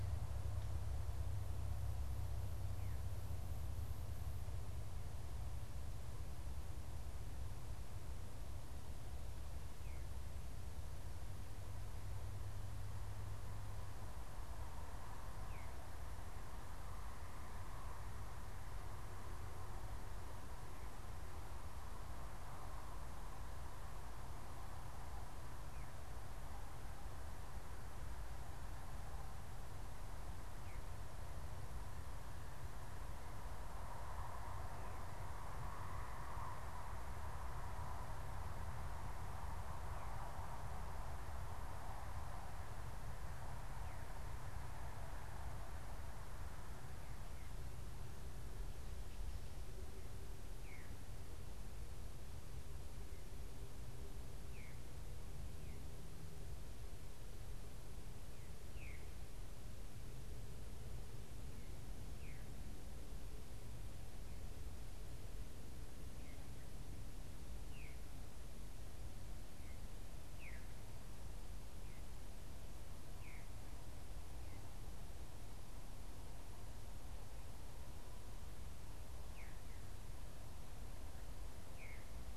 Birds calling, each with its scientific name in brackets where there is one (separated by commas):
Veery (Catharus fuscescens)